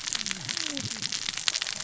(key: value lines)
label: biophony, cascading saw
recorder: SoundTrap 600 or HydroMoth